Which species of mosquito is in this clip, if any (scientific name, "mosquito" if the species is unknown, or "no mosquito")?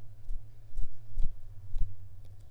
Mansonia africanus